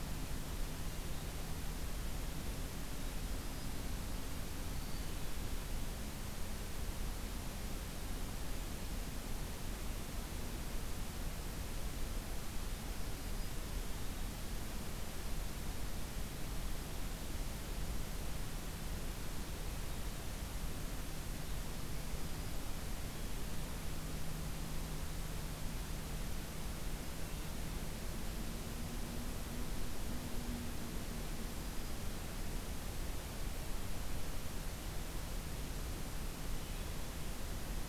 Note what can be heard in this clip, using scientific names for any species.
forest ambience